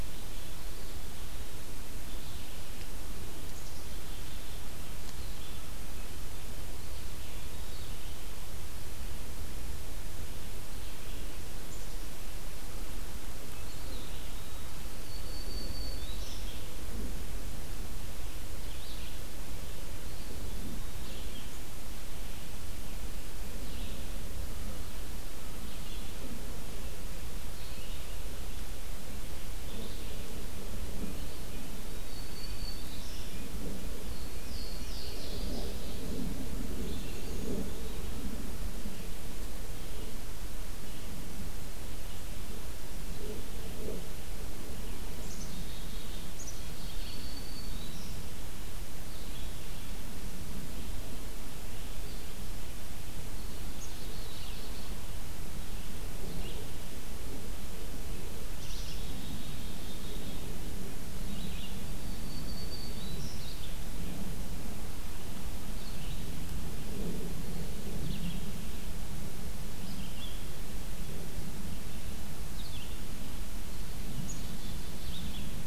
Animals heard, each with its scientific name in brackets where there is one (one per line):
Eastern Wood-Pewee (Contopus virens)
Black-capped Chickadee (Poecile atricapillus)
Red-eyed Vireo (Vireo olivaceus)
Black-throated Green Warbler (Setophaga virens)
Louisiana Waterthrush (Parkesia motacilla)